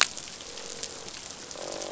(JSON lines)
{"label": "biophony, croak", "recorder": "SoundTrap 500"}